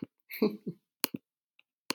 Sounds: Laughter